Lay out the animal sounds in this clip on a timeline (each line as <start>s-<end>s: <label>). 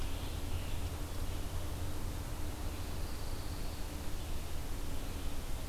0.0s-1.1s: Scarlet Tanager (Piranga olivacea)
2.5s-4.0s: Dark-eyed Junco (Junco hyemalis)